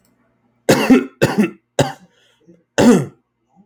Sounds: Cough